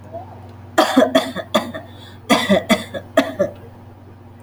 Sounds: Cough